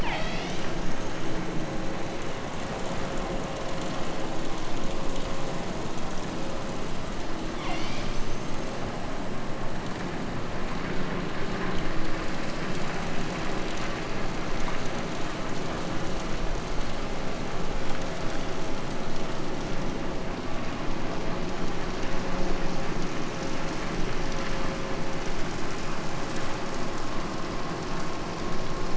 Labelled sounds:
0.0	1.5	killer whale, southern Alaska resident, 0.44 to 8.0 kHz
7.5	8.8	killer whale, southern Alaska resident, 0.51 to 8.0 kHz

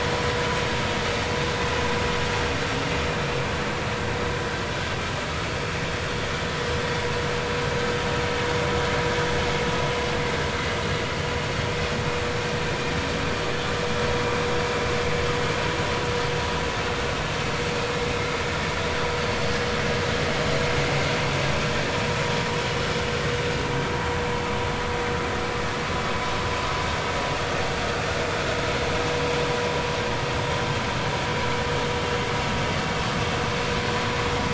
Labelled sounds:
12.7	12.9	vessel noise, 2.3 to 2.5 kHz

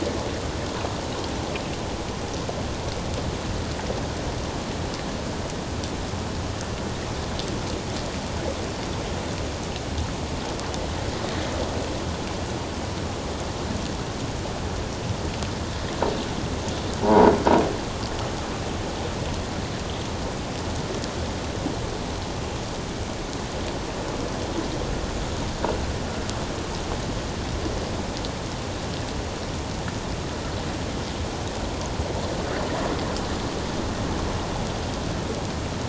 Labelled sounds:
17.0	17.3	croaking sound likely from a nearby submerged object, 0.81 to 1.1 kHz

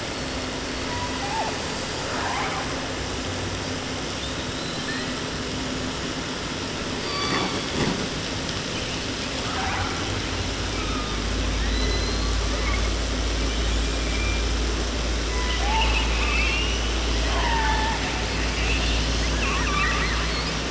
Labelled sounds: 0.0	1.6	killer whale, 0.34 to 8.0 kHz
2.0	2.8	killer whale, southern resident, 0.30 to 3.0 kHz
4.2	5.2	killer whale, 0.30 to 4.3 kHz
7.0	7.8	killer whale, 0.56 to 6.1 kHz
9.4	10.1	killer whale, 0.46 to 2.9 kHz
10.6	12.9	killer whale, 0.30 to 4.6 kHz
13.3	14.7	killer whale, 1.6 to 3.7 kHz
15.2	17.0	killer whale, 0.30 to 6.8 kHz
17.3	18.2	killer whale, southern resident, 0.30 to 5.6 kHz
19.2	20.6	killer whale, southern resident, 0.30 to 7.2 kHz

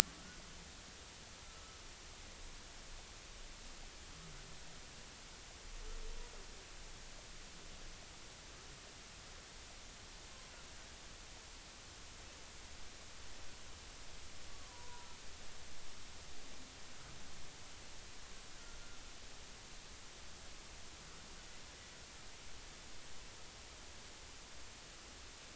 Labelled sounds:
0.2	0.4	humpback whale, 1.3 to 1.5 kHz
1.4	1.8	humpback whale, 1.2 to 1.4 kHz
14.5	15.1	humpback whale, 0.90 to 1.2 kHz

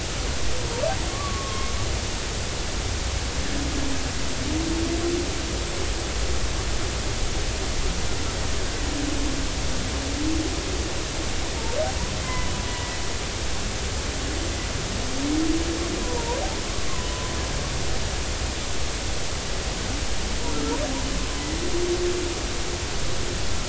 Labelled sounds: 1.1	1.7	humpback whale, 1.0 to 1.2 kHz
12.2	13.0	humpback whale, 0.96 to 2.1 kHz
16.0	16.4	humpback whale, 0.90 to 1.0 kHz
20.5	20.8	humpback whale, 1.3 to 1.4 kHz

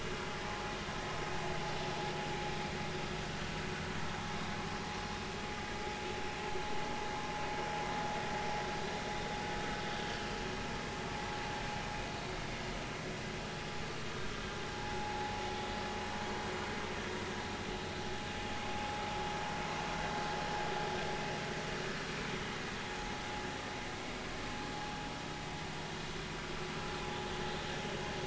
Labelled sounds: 14.7	15.3	vessel noise, 0.80 to 0.99 kHz

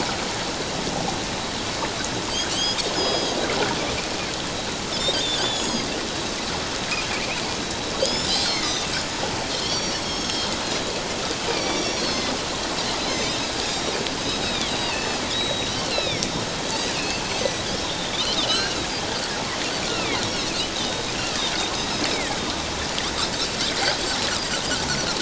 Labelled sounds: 2.5	3.4	Pacific white-sided dolphin, 2.9 to 7.0 kHz
5.4	5.9	Pacific white-sided dolphin, 3.2 to 8.0 kHz
8.0	10.6	Pacific white-sided dolphin, 1.9 to 7.2 kHz
11.5	12.3	Pacific white-sided dolphin, 2.2 to 5.9 kHz
13.1	16.4	Pacific white-sided dolphin, 2.0 to 6.5 kHz
17.0	18.8	Pacific white-sided dolphin, 1.2 to 6.3 kHz
19.9	21.4	Pacific white-sided dolphin, 1.2 to 4.5 kHz

